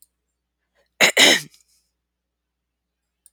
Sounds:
Throat clearing